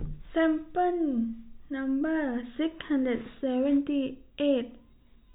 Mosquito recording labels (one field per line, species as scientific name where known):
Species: no mosquito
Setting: cup